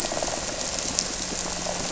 {"label": "anthrophony, boat engine", "recorder": "SoundTrap 300"}
{"label": "biophony", "recorder": "SoundTrap 300"}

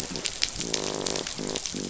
{"label": "biophony, croak", "recorder": "SoundTrap 500"}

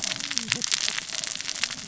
{"label": "biophony, cascading saw", "recorder": "SoundTrap 600 or HydroMoth"}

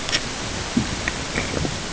{"label": "ambient", "recorder": "HydroMoth"}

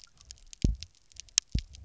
{"label": "biophony, double pulse", "recorder": "SoundTrap 300"}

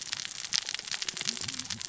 {"label": "biophony, cascading saw", "recorder": "SoundTrap 600 or HydroMoth"}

